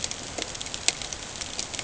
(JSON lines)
{"label": "ambient", "recorder": "HydroMoth"}